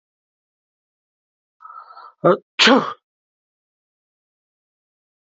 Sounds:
Sneeze